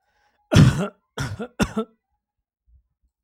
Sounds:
Cough